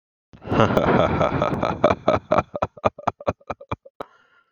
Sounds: Laughter